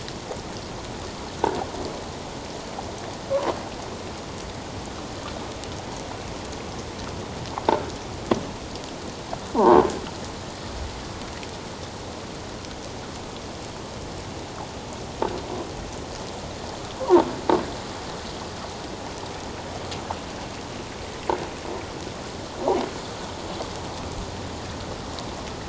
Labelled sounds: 9.5	9.8	croaking sound likely from a nearby submerged object, 0.78 to 1.7 kHz
17.0	17.2	croaking sound likely from a nearby submerged object, 0.78 to 1.2 kHz

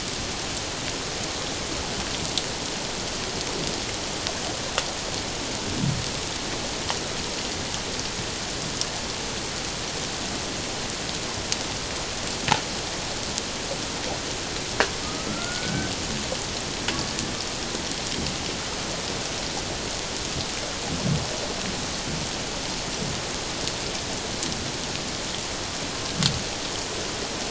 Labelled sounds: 15.0	15.9	killer whale, Bigg's (transient), 1.2 to 1.7 kHz

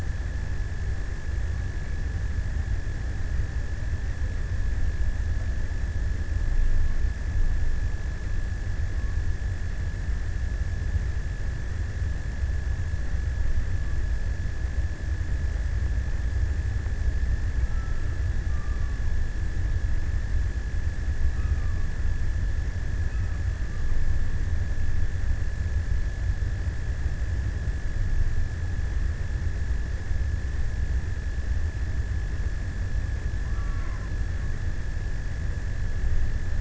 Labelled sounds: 17.1	20.1	killer whale, offshore, 0.37 to 1.6 kHz
20.8	22.5	killer whale, offshore, 0.59 to 1.5 kHz
23.0	24.5	killer whale, offshore, 0.68 to 1.5 kHz
33.3	34.4	killer whale, offshore, 0.63 to 2.1 kHz

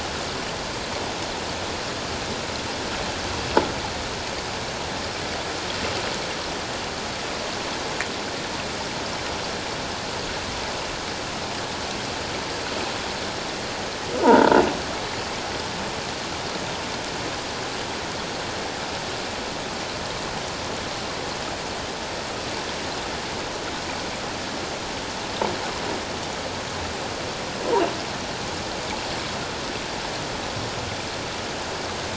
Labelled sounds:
14.2	14.6	croaking sound likely from a nearby submerged object, 0.81 to 1.7 kHz

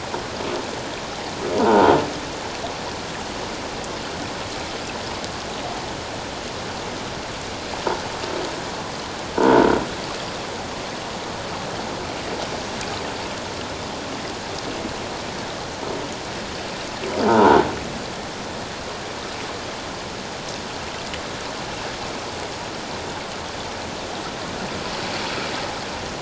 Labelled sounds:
1.6	2.0	croaking sound likely from a nearby submerged object, 0.78 to 1.6 kHz
9.4	9.6	croaking sound likely from a nearby submerged object, 1.4 to 1.6 kHz
17.3	17.7	croaking sound likely from a nearby submerged object, 0.84 to 1.6 kHz

